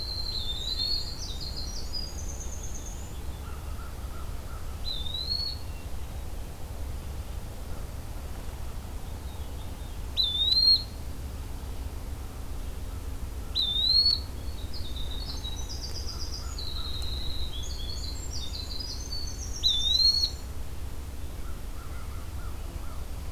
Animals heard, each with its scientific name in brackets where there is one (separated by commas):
American Crow (Corvus brachyrhynchos), Eastern Wood-Pewee (Contopus virens), Veery (Catharus fuscescens), Hermit Thrush (Catharus guttatus), Winter Wren (Troglodytes hiemalis)